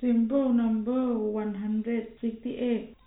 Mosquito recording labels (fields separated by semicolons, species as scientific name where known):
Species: no mosquito; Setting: cup